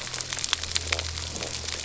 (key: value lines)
label: anthrophony, boat engine
recorder: SoundTrap 300

label: biophony, stridulation
recorder: SoundTrap 300